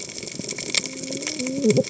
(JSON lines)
{"label": "biophony, cascading saw", "recorder": "HydroMoth"}